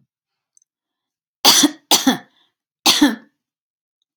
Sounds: Cough